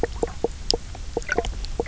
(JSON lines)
{"label": "biophony, knock croak", "recorder": "SoundTrap 300"}